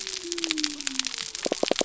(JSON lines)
{"label": "biophony", "recorder": "SoundTrap 300"}